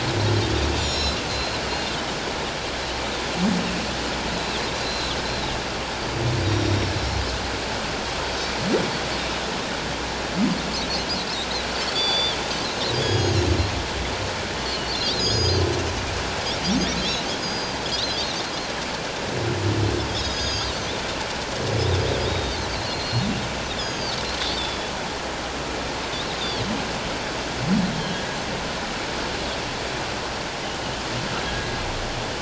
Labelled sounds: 1.3	2.0	Pacific white-sided dolphin, 2.7 to 4.2 kHz
4.3	5.1	Pacific white-sided dolphin, 3.2 to 4.3 kHz
6.4	6.9	Pacific white-sided dolphin, 3.7 to 5.7 kHz
11.9	13.4	Pacific white-sided dolphin, 3.1 to 8.0 kHz
15.2	15.6	Pacific white-sided dolphin, 4.5 to 6.8 kHz
17.0	18.4	Pacific white-sided dolphin, 3.2 to 5.1 kHz
20.1	20.7	Pacific white-sided dolphin, 3.1 to 6.8 kHz
22.2	24.2	Pacific white-sided dolphin, 3.1 to 6.8 kHz
24.6	24.9	Pacific white-sided dolphin, 3.4 to 3.7 kHz
26.4	26.7	Pacific white-sided dolphin, 3.1 to 3.8 kHz
28.0	28.2	Pacific white-sided dolphin, 2.9 to 3.4 kHz

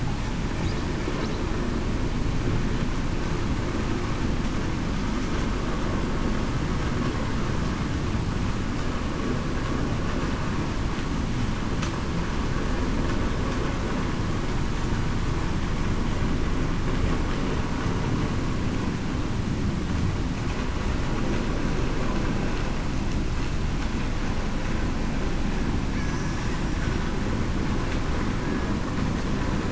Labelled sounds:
26.1	26.5	killer whale, Bigg's (transient), 5.6 to 5.7 kHz

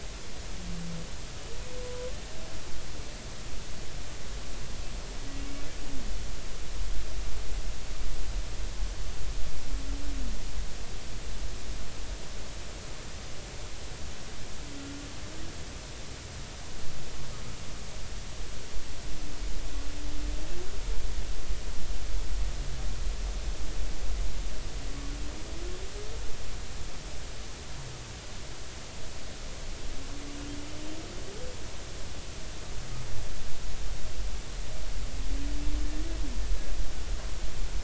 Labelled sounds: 1.8	2.1	humpback whale, 0.96 to 1.1 kHz

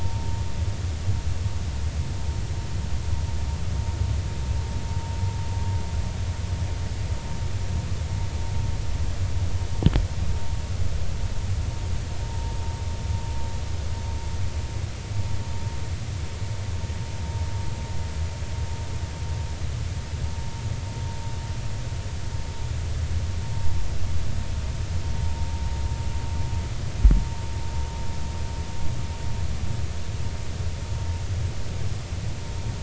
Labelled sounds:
0.0	0.2	vessel noise, 0.90 to 0.96 kHz

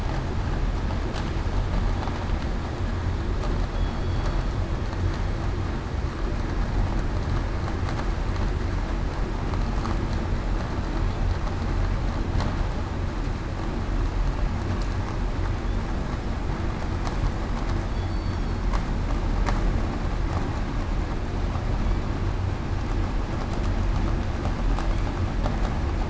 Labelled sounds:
3.7	4.3	killer whale, southern resident, 3.2 to 4.5 kHz

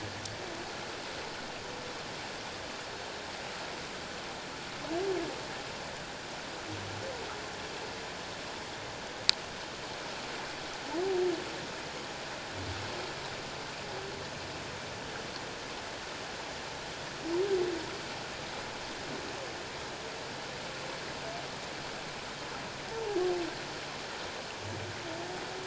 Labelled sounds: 22.9	23.2	humpback whale, 0.78 to 0.94 kHz

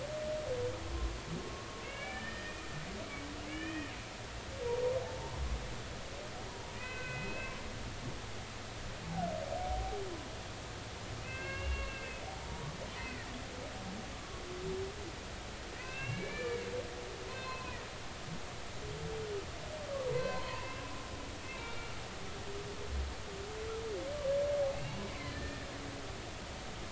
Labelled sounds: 1.4	2.6	humpback whale, 1.1 to 3.1 kHz
3.5	3.9	humpback whale, 1.6 to 3.2 kHz
5.0	5.4	humpback whale, 0.80 to 1.1 kHz
6.8	7.5	humpback whale, 1.5 to 2.7 kHz
9.6	10.0	humpback whale, 0.80 to 0.83 kHz
11.2	12.7	humpback whale, 0.80 to 2.8 kHz
13.0	13.3	humpback whale, 1.8 to 2.1 kHz
13.9	14.2	humpback whale, 2.3 to 2.7 kHz
15.8	16.6	humpback whale, 1.5 to 2.8 kHz
17.3	17.8	humpback whale, 0.96 to 4.2 kHz
20.1	20.8	humpback whale, 0.90 to 2.8 kHz
21.6	21.9	humpback whale, 2.3 to 2.4 kHz
25.3	25.7	humpback whale, 1.7 to 1.9 kHz

